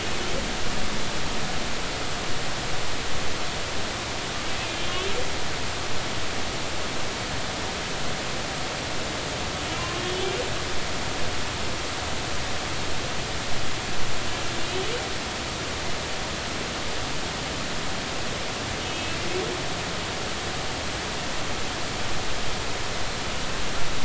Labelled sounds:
4.7	5.1	humpback whale, 2.8 to 3.6 kHz
10.0	10.3	humpback whale, 3.2 to 3.5 kHz
18.8	19.2	humpback whale, 2.5 to 3.0 kHz

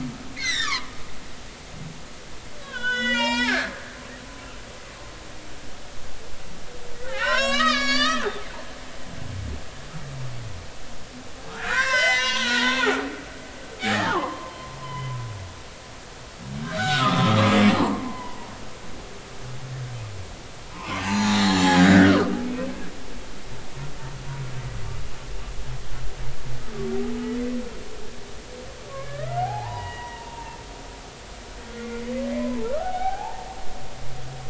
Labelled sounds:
0.3	0.9	humpback whale, 0.93 to 6.4 kHz
2.6	4.0	humpback whale, 0.80 to 8.0 kHz
6.9	8.2	humpback whale, 0.80 to 7.6 kHz
11.5	12.9	humpback whale, 0.83 to 7.5 kHz
13.8	14.5	humpback whale, 0.80 to 2.0 kHz
14.8	15.1	humpback whale, 2.0 to 3.1 kHz
16.7	18.5	humpback whale, 0.80 to 4.0 kHz
20.7	22.7	humpback whale, 0.80 to 6.2 kHz
28.9	30.6	humpback whale, 0.80 to 3.0 kHz
31.7	32.0	humpback whale, 1.8 to 2.2 kHz
32.3	33.5	humpback whale, 0.80 to 2.4 kHz

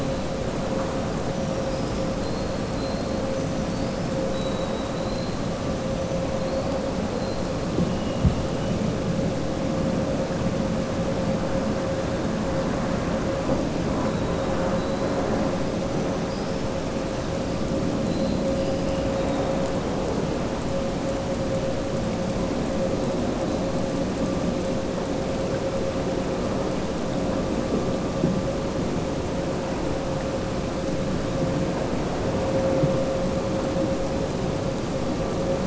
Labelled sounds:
4.2	5.3	killer whale, southern resident, 3.8 to 4.3 kHz

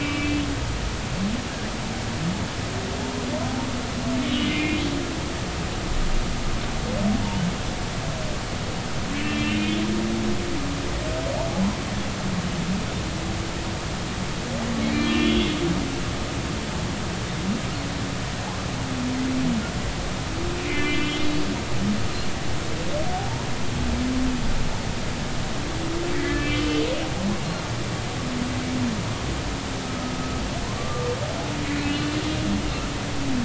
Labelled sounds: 0.0	0.4	humpback whale, 2.3 to 2.4 kHz
4.3	4.8	humpback whale, 2.0 to 3.0 kHz
9.1	9.8	humpback whale, 1.7 to 3.2 kHz
14.9	15.5	humpback whale, 1.7 to 3.5 kHz
20.6	21.2	humpback whale, 2.0 to 3.1 kHz
26.2	26.9	humpback whale, 1.7 to 3.1 kHz
30.8	31.1	humpback whale, 1.1 to 1.2 kHz
31.8	32.1	humpback whale, 2.5 to 2.7 kHz

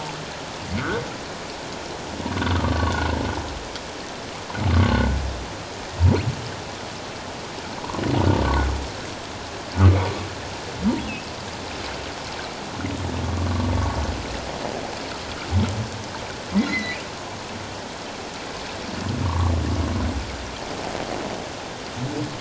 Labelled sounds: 0.8	1.0	humpback whale, 1.1 to 1.6 kHz
2.6	2.9	humpback whale, 0.94 to 1.3 kHz
4.7	5.1	humpback whale, 1.0 to 1.6 kHz
16.6	17.0	humpback whale, 1.9 to 4.2 kHz
19.2	19.5	humpback whale, 0.88 to 1.2 kHz

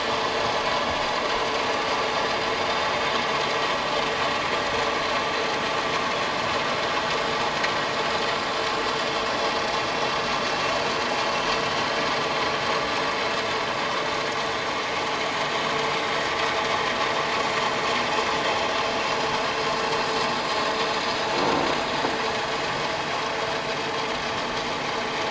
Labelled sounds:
20.6	20.9	vessel noise, 3.4 to 3.9 kHz

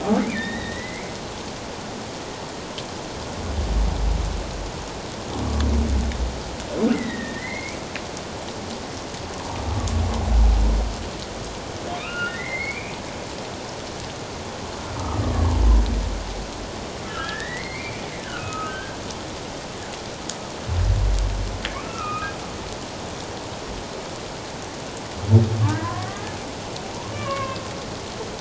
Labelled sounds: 0.2	1.1	humpback whale, 1.7 to 4.0 kHz
6.9	7.8	humpback whale, 1.8 to 2.4 kHz
11.9	13.0	humpback whale, 1.1 to 4.6 kHz
17.0	19.0	humpback whale, 1.2 to 2.7 kHz
21.7	22.3	humpback whale, 1.0 to 2.7 kHz
25.7	26.3	humpback whale, 0.84 to 2.1 kHz
27.1	27.6	humpback whale, 1.0 to 2.9 kHz

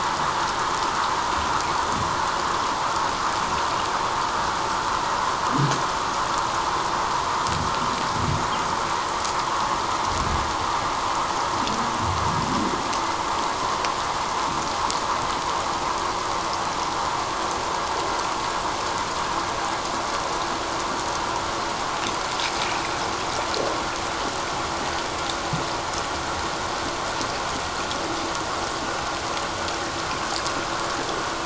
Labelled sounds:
22.6	22.8	water noise, 2.2 to 2.6 kHz

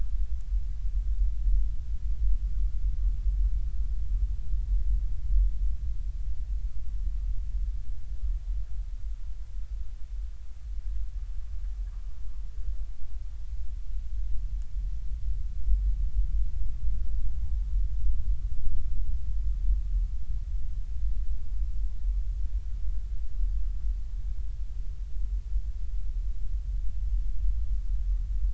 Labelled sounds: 17.4	17.7	humpback whale, 0.80 to 0.93 kHz

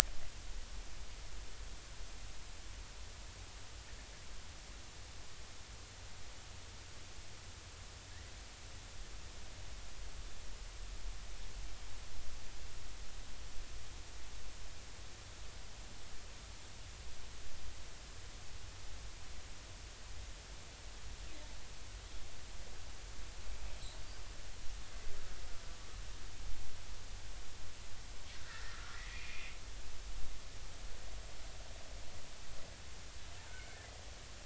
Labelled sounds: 28.5	29.6	killer whale, Bigg's (transient), 1.1 to 2.8 kHz
33.5	33.8	killer whale, Bigg's (transient), 1.4 to 2.3 kHz

